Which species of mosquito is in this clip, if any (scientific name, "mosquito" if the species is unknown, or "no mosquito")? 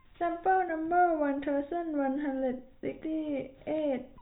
no mosquito